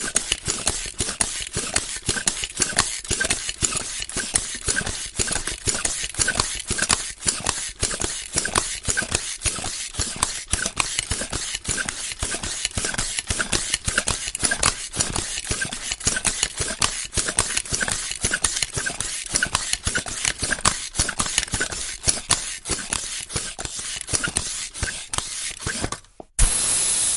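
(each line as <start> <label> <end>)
0.0 A bike pump is rhythmically pumping air into a tire. 26.1
26.2 The soft clack of a pump being released from a bike tire. 26.3
26.3 A loud whizz of air being released from a bike tire. 27.2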